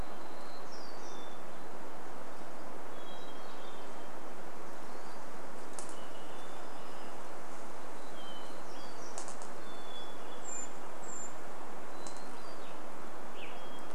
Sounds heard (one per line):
Brown Creeper call
Western Tanager song
Hermit Thrush call
warbler song
Hermit Thrush song